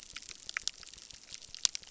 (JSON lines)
{"label": "biophony, crackle", "recorder": "SoundTrap 600"}